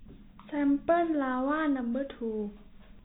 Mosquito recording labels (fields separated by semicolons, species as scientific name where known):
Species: no mosquito; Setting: cup